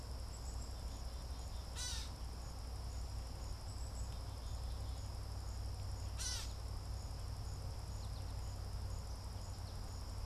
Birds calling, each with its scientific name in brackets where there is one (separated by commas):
Black-capped Chickadee (Poecile atricapillus), Gray Catbird (Dumetella carolinensis), American Goldfinch (Spinus tristis)